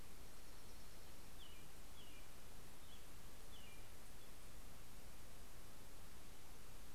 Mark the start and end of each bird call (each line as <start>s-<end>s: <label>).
0.0s-2.0s: Dark-eyed Junco (Junco hyemalis)
1.2s-4.4s: American Robin (Turdus migratorius)